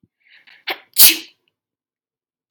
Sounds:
Sneeze